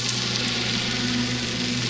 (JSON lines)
{"label": "anthrophony, boat engine", "recorder": "SoundTrap 500"}